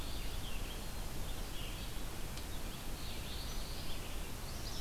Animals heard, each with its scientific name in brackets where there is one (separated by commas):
Black-throated Blue Warbler (Setophaga caerulescens), Red-eyed Vireo (Vireo olivaceus)